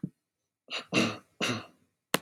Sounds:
Throat clearing